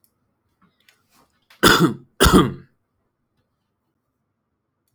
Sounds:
Cough